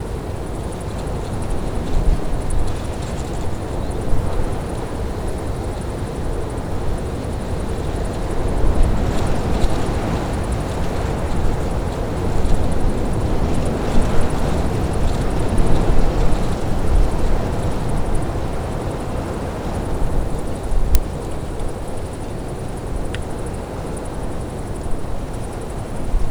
Is there voices?
no